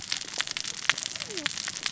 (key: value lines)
label: biophony, cascading saw
recorder: SoundTrap 600 or HydroMoth